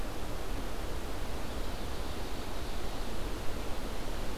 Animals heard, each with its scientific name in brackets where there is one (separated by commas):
Ovenbird (Seiurus aurocapilla)